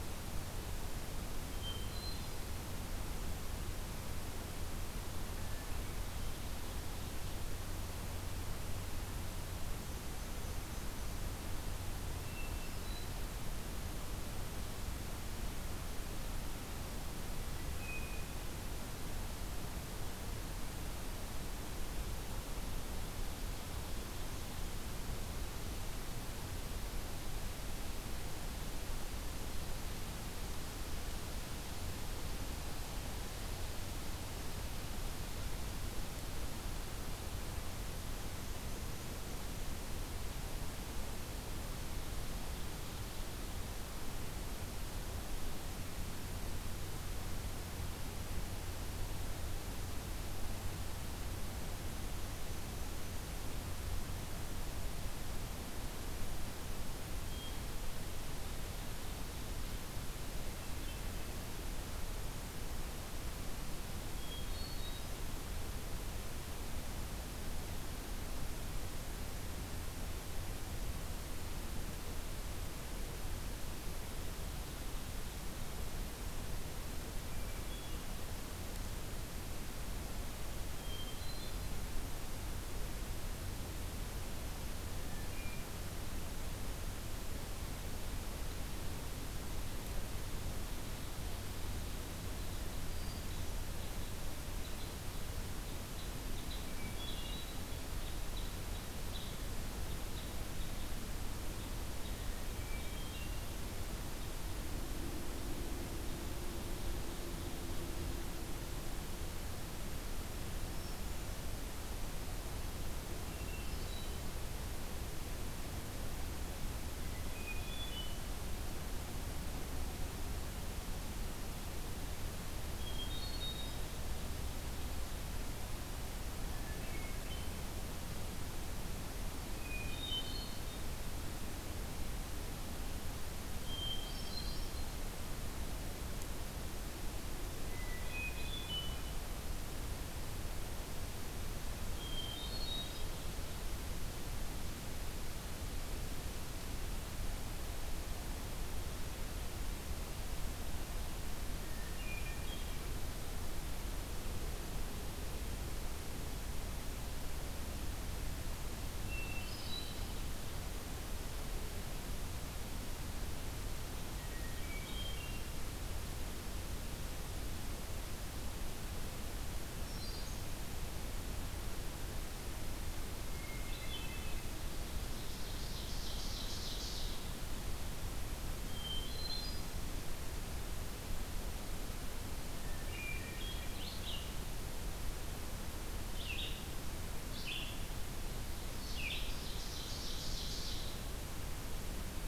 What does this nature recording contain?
Hermit Thrush, Black-and-white Warbler, Red Crossbill, Ovenbird, Red-eyed Vireo